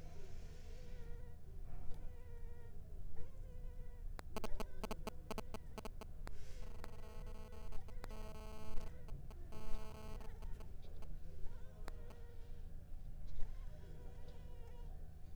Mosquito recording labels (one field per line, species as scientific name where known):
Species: Anopheles arabiensis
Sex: female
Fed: unfed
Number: one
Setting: cup